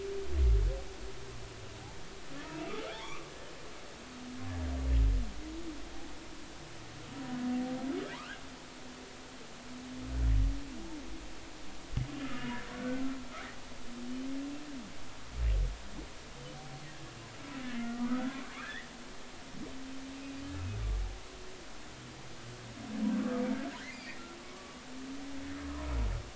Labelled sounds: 2.5	3.3	humpback whale, 0.83 to 3.7 kHz
8.1	8.4	humpback whale, 0.86 to 1.7 kHz
12.2	13.0	humpback whale, 1.2 to 1.6 kHz
17.9	18.9	humpback whale, 1.1 to 2.0 kHz
23.9	24.2	humpback whale, 1.8 to 2.6 kHz
25.6	25.9	humpback whale, 0.93 to 1.1 kHz

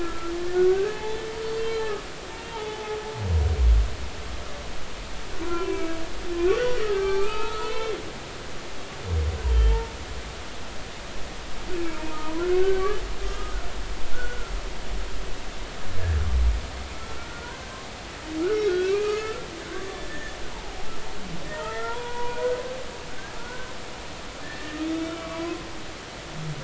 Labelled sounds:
0.0	1.2	humpback whale, 0.80 to 1.8 kHz
2.5	3.0	humpback whale, 0.80 to 0.96 kHz
5.4	6.0	humpback whale, 0.93 to 2.4 kHz
6.5	7.9	humpback whale, 0.80 to 4.0 kHz
9.5	9.9	humpback whale, 0.86 to 3.2 kHz
12.2	13.6	humpback whale, 0.90 to 1.3 kHz
14.1	14.5	humpback whale, 1.3 to 1.5 kHz
17.0	17.6	humpback whale, 1.3 to 1.6 kHz
18.7	19.5	humpback whale, 1.1 to 2.7 kHz
20.1	20.8	humpback whale, 0.80 to 1.9 kHz
21.5	22.4	humpback whale, 0.83 to 1.9 kHz
23.4	23.7	humpback whale, 1.3 to 1.6 kHz
24.4	25.6	humpback whale, 0.96 to 3.7 kHz

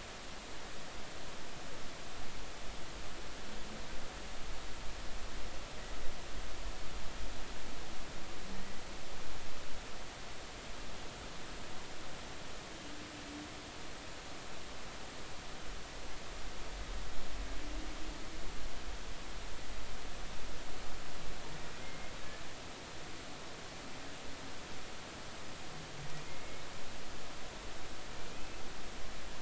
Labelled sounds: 8.6	8.8	humpback whale, 1.8 to 2.0 kHz
21.8	22.1	humpback whale, 2.0 to 2.2 kHz
26.3	26.6	humpback whale, 2.1 to 2.2 kHz
28.3	28.6	humpback whale, 2.4 to 2.7 kHz

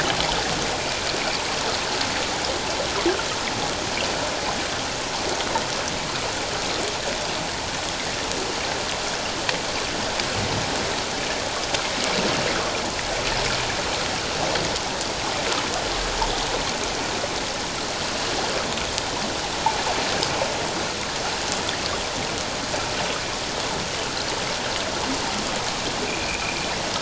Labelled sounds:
26.1	26.6	humpback whale, 2.1 to 2.6 kHz

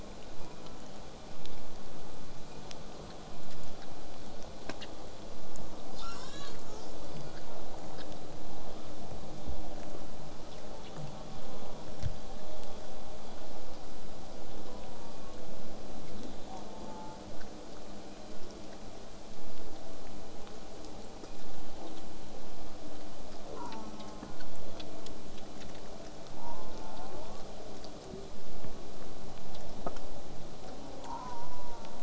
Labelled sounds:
5.9	7.6	killer whale, southern resident, J pod, 0.95 to 8.0 kHz
11.4	11.8	killer whale, southern resident, J pod, call S04, 0.34 to 1.3 kHz
11.8	12.1	killer whale, southern resident, J pod, whistle, 5.1 to 5.7 kHz
14.6	15.4	killer whale, southern resident, J pod, call S04, 0.53 to 1.2 kHz
16.5	17.2	killer whale, southern resident, J pod, call S04, 0.61 to 1.6 kHz
21.8	22.0	killer whale, southern resident, J pod, call S04, 0.23 to 1.2 kHz
23.5	24.4	killer whale, southern resident, J pod, call S04, 0.64 to 1.6 kHz
26.4	27.1	killer whale, southern resident, J pod, call S04, 0.15 to 1.2 kHz
26.9	27.4	killer whale, southern resident, J pod, 0.30 to 1.4 kHz
28.1	28.8	killer whale, southern resident, J pod, 0.11 to 0.83 kHz
31.0	32.0	killer whale, southern resident, J pod, call S04, 0.57 to 1.7 kHz

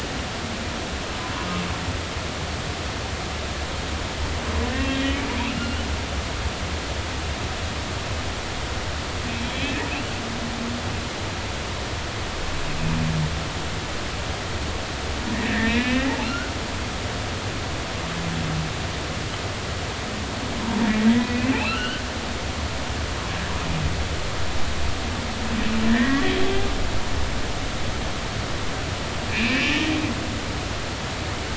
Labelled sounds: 4.8	5.8	humpback whale, 2.4 to 3.3 kHz
9.5	9.8	humpback whale, 2.3 to 2.7 kHz
15.3	16.5	humpback whale, 1.3 to 2.9 kHz
21.2	22.0	humpback whale, 1.2 to 3.1 kHz
25.9	26.2	humpback whale, 1.5 to 2.0 kHz
29.3	29.9	humpback whale, 1.6 to 3.1 kHz

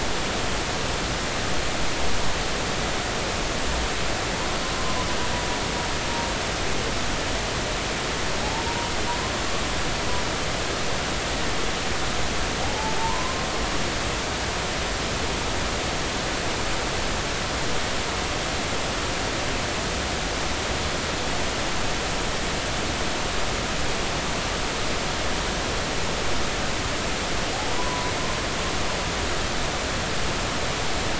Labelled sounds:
12.6	13.5	humpback whale, 0.80 to 1.1 kHz
27.7	28.1	humpback whale, 0.93 to 1.1 kHz

